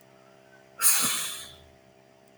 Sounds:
Sigh